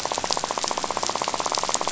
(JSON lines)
{"label": "biophony, rattle", "recorder": "SoundTrap 500"}